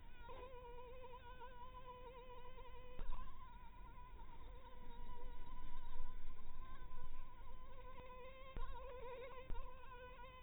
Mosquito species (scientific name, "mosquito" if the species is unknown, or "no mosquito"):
mosquito